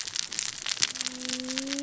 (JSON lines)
{"label": "biophony, cascading saw", "recorder": "SoundTrap 600 or HydroMoth"}